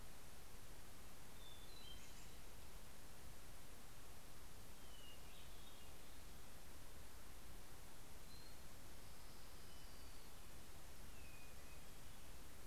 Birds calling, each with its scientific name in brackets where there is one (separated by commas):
Orange-crowned Warbler (Leiothlypis celata), American Robin (Turdus migratorius), Hermit Thrush (Catharus guttatus)